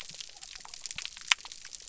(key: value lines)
label: biophony
recorder: SoundTrap 300